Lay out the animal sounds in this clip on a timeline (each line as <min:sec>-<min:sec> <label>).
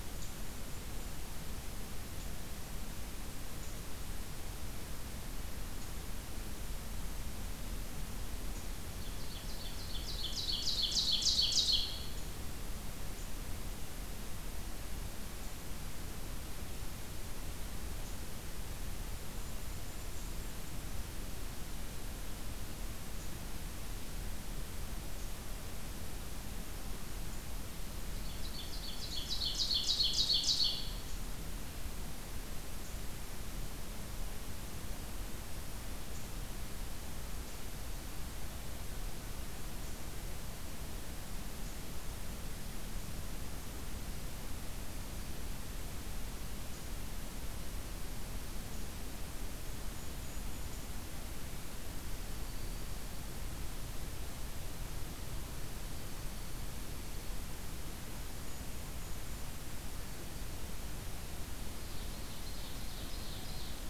0:00.0-0:01.4 Golden-crowned Kinglet (Regulus satrapa)
0:08.7-0:12.1 Ovenbird (Seiurus aurocapilla)
0:19.0-0:20.6 Golden-crowned Kinglet (Regulus satrapa)
0:28.2-0:31.0 Ovenbird (Seiurus aurocapilla)
0:49.5-0:51.1 Golden-crowned Kinglet (Regulus satrapa)
0:57.8-1:00.0 Golden-crowned Kinglet (Regulus satrapa)
1:01.6-1:03.9 Ovenbird (Seiurus aurocapilla)